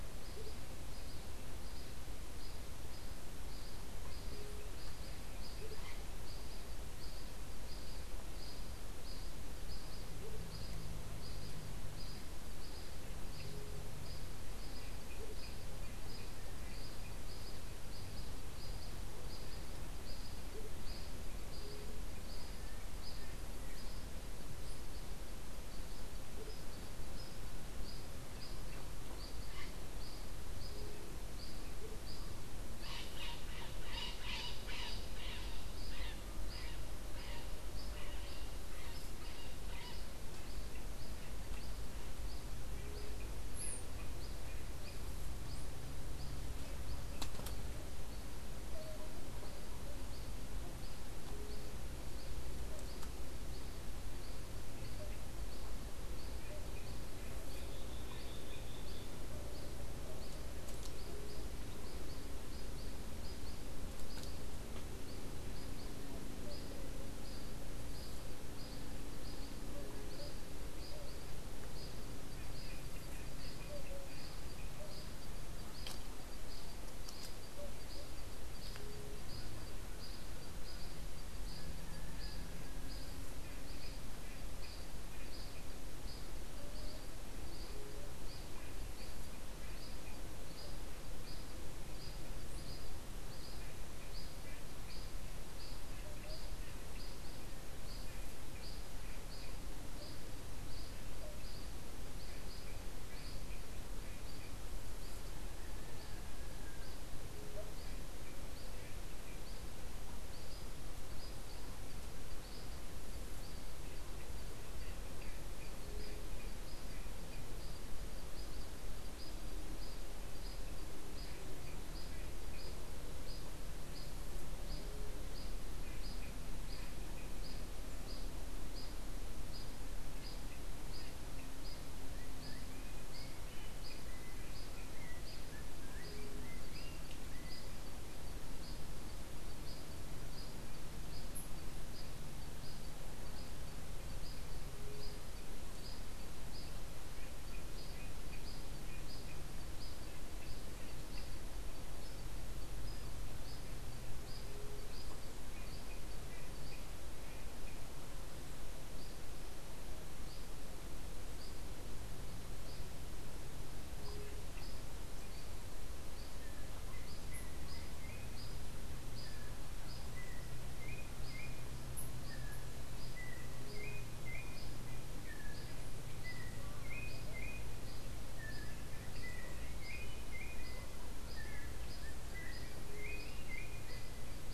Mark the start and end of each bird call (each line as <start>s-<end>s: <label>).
0.0s-16.8s: Andean Motmot (Momotus aequatorialis)
20.5s-32.0s: Andean Motmot (Momotus aequatorialis)
32.8s-40.2s: Bronze-winged Parrot (Pionus chalcopterus)
78.6s-79.3s: White-tipped Dove (Leptotila verreauxi)
134.0s-137.8s: Yellow-backed Oriole (Icterus chrysater)
154.3s-155.0s: White-tipped Dove (Leptotila verreauxi)
163.8s-164.6s: White-tipped Dove (Leptotila verreauxi)
166.3s-184.5s: Yellow-backed Oriole (Icterus chrysater)
173.4s-174.1s: White-tipped Dove (Leptotila verreauxi)
182.6s-183.3s: White-tipped Dove (Leptotila verreauxi)